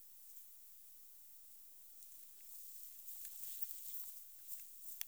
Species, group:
Poecilimon chopardi
Orthoptera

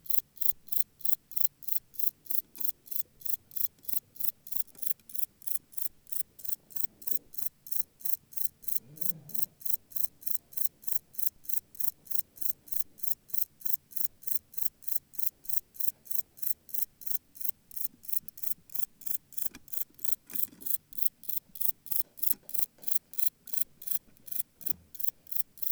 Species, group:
Metrioptera brachyptera
Orthoptera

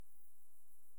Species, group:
Tettigonia viridissima
Orthoptera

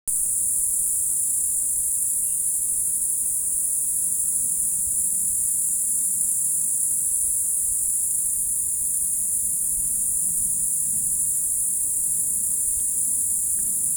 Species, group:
Tettigonia viridissima
Orthoptera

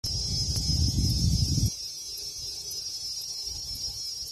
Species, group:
Thopha saccata
Cicadidae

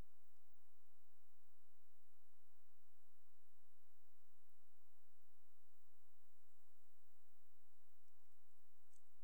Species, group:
Poecilimon jonicus
Orthoptera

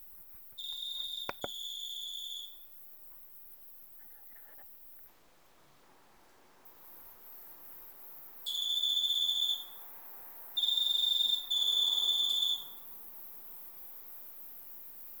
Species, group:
Eugryllodes escalerae
Orthoptera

